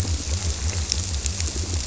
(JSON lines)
{"label": "biophony", "recorder": "SoundTrap 300"}